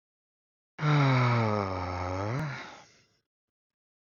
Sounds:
Sigh